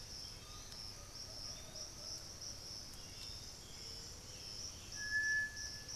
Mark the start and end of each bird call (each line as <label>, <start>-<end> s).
Black-billed Thrush (Turdus ignobilis), 0.0-6.0 s
Piratic Flycatcher (Legatus leucophaius), 0.0-6.0 s
Undulated Tinamou (Crypturellus undulatus), 0.2-2.5 s
Plumbeous Pigeon (Patagioenas plumbea), 1.1-2.8 s